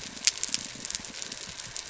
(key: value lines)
label: biophony
recorder: SoundTrap 300